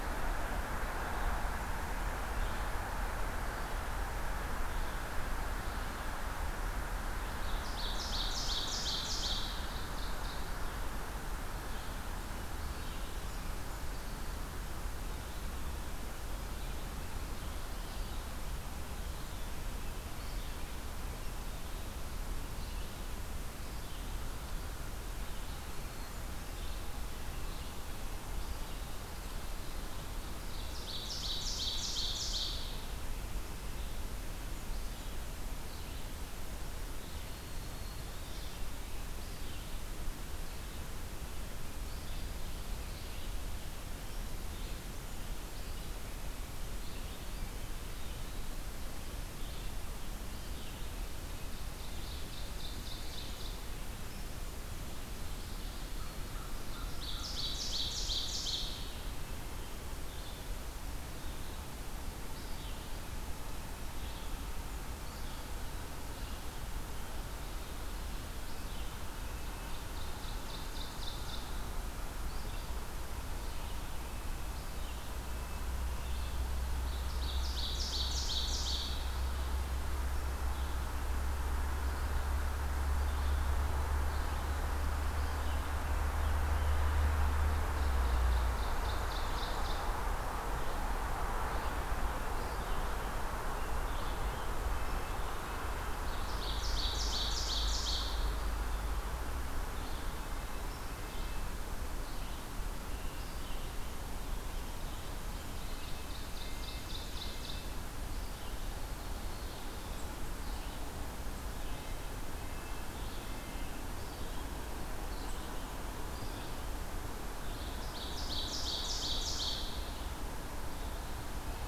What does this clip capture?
Red-eyed Vireo, Ovenbird, Blackburnian Warbler, American Crow, Red-breasted Nuthatch, Black-throated Green Warbler